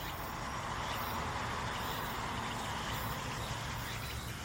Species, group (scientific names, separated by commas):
Meimuna opalifera, Cicadidae